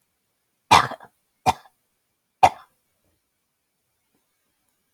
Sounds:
Throat clearing